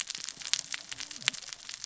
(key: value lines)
label: biophony, cascading saw
recorder: SoundTrap 600 or HydroMoth